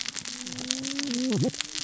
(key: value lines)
label: biophony, cascading saw
recorder: SoundTrap 600 or HydroMoth